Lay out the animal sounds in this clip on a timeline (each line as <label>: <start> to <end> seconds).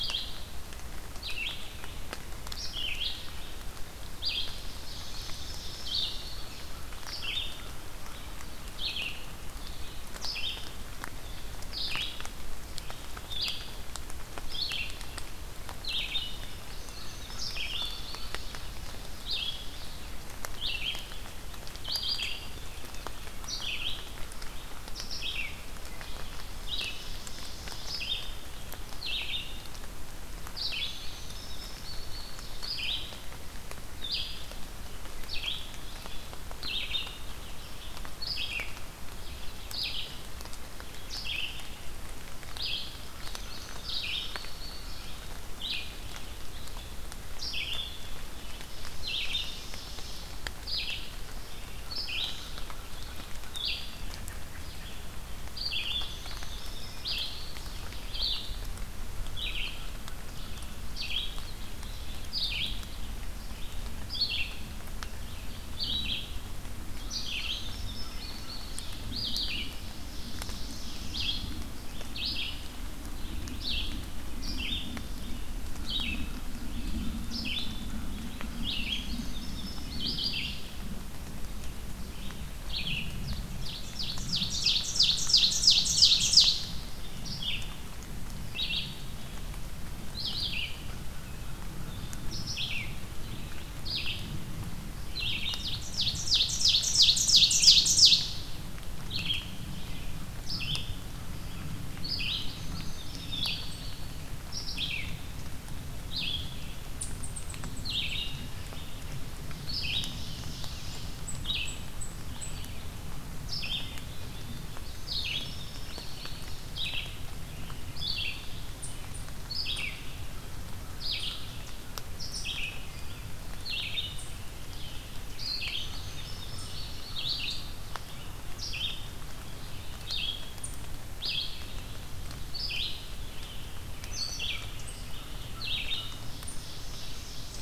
Red-eyed Vireo (Vireo olivaceus): 0.0 to 34.5 seconds
Wood Thrush (Hylocichla mustelina): 2.6 to 3.5 seconds
Indigo Bunting (Passerina cyanea): 4.9 to 6.7 seconds
American Crow (Corvus brachyrhynchos): 6.5 to 8.5 seconds
Indigo Bunting (Passerina cyanea): 16.6 to 18.6 seconds
American Crow (Corvus brachyrhynchos): 16.8 to 18.6 seconds
Ovenbird (Seiurus aurocapilla): 18.1 to 19.8 seconds
Wood Thrush (Hylocichla mustelina): 25.7 to 26.4 seconds
Ovenbird (Seiurus aurocapilla): 26.5 to 28.2 seconds
Indigo Bunting (Passerina cyanea): 30.9 to 32.6 seconds
Red-eyed Vireo (Vireo olivaceus): 35.2 to 92.9 seconds
Indigo Bunting (Passerina cyanea): 43.1 to 45.3 seconds
Ovenbird (Seiurus aurocapilla): 48.6 to 50.4 seconds
American Crow (Corvus brachyrhynchos): 51.8 to 53.4 seconds
American Robin (Turdus migratorius): 53.9 to 55.0 seconds
Indigo Bunting (Passerina cyanea): 56.0 to 57.8 seconds
American Crow (Corvus brachyrhynchos): 59.1 to 60.9 seconds
Indigo Bunting (Passerina cyanea): 67.2 to 69.0 seconds
Wood Thrush (Hylocichla mustelina): 68.0 to 68.6 seconds
Ovenbird (Seiurus aurocapilla): 69.5 to 71.5 seconds
American Crow (Corvus brachyrhynchos): 75.7 to 78.9 seconds
Indigo Bunting (Passerina cyanea): 78.8 to 80.3 seconds
Ovenbird (Seiurus aurocapilla): 83.2 to 86.7 seconds
American Crow (Corvus brachyrhynchos): 84.1 to 86.5 seconds
American Crow (Corvus brachyrhynchos): 90.7 to 92.3 seconds
Red-eyed Vireo (Vireo olivaceus): 93.8 to 137.6 seconds
Ovenbird (Seiurus aurocapilla): 95.3 to 98.7 seconds
Indigo Bunting (Passerina cyanea): 102.2 to 103.8 seconds
Ovenbird (Seiurus aurocapilla): 109.6 to 111.3 seconds
unidentified call: 110.8 to 112.6 seconds
Wood Thrush (Hylocichla mustelina): 113.8 to 114.7 seconds
Indigo Bunting (Passerina cyanea): 114.9 to 116.7 seconds
American Crow (Corvus brachyrhynchos): 120.2 to 122.0 seconds
Indigo Bunting (Passerina cyanea): 125.7 to 127.3 seconds
American Crow (Corvus brachyrhynchos): 133.6 to 136.1 seconds
Ovenbird (Seiurus aurocapilla): 136.0 to 137.6 seconds